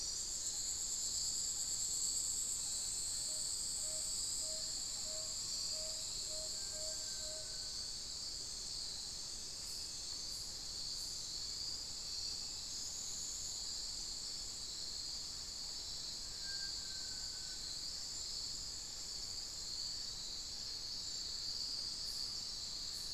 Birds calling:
Little Tinamou (Crypturellus soui), Tawny-bellied Screech-Owl (Megascops watsonii), Amazonian Pygmy-Owl (Glaucidium hardyi)

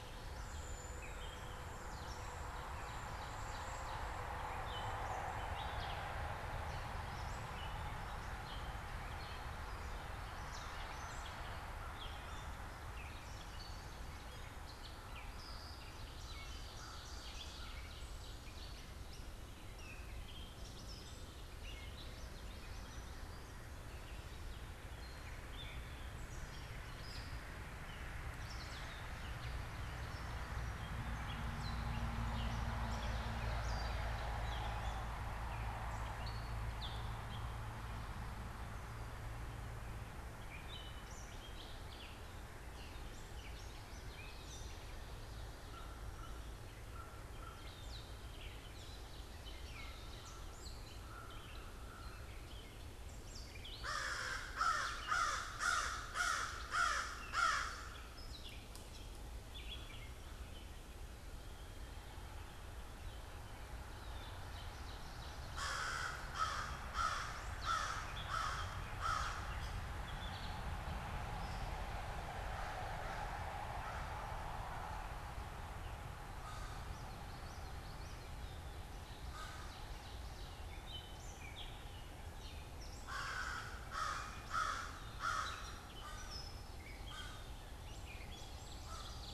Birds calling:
Cedar Waxwing (Bombycilla cedrorum), Common Yellowthroat (Geothlypis trichas), American Crow (Corvus brachyrhynchos), Gray Catbird (Dumetella carolinensis), Ovenbird (Seiurus aurocapilla)

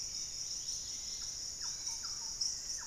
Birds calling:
Yellow-margined Flycatcher (Tolmomyias assimilis), Golden-crowned Spadebill (Platyrinchus coronatus), Thrush-like Wren (Campylorhynchus turdinus), Dusky-capped Greenlet (Pachysylvia hypoxantha)

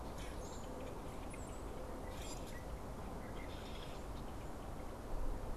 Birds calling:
unidentified bird, Common Grackle (Quiscalus quiscula)

